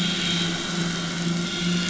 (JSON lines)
{"label": "anthrophony, boat engine", "recorder": "SoundTrap 500"}